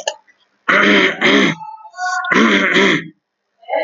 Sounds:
Throat clearing